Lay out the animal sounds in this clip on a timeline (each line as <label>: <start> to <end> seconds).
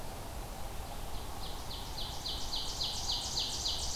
Ovenbird (Seiurus aurocapilla): 0.7 to 4.0 seconds